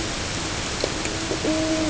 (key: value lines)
label: ambient
recorder: HydroMoth